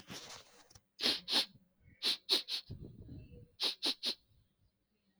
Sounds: Sniff